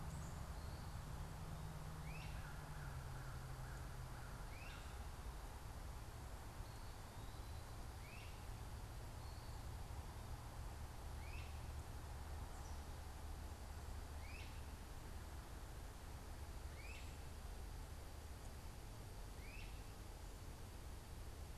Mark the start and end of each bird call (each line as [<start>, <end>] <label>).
[0.00, 21.57] Great Crested Flycatcher (Myiarchus crinitus)